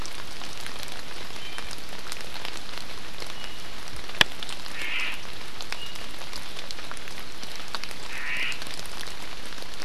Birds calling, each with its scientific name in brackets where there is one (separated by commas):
Omao (Myadestes obscurus), Iiwi (Drepanis coccinea)